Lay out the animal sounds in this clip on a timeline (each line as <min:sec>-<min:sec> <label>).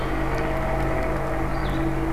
0:00.2-0:02.1 Blue-headed Vireo (Vireo solitarius)